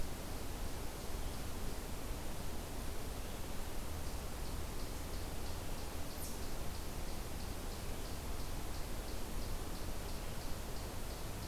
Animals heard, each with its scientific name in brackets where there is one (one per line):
Eastern Chipmunk (Tamias striatus)